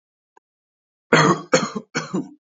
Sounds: Cough